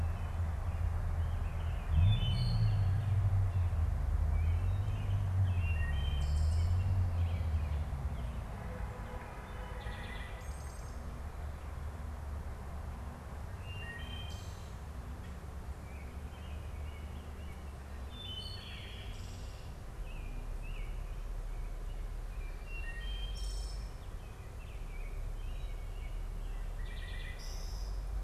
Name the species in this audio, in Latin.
Turdus migratorius, Hylocichla mustelina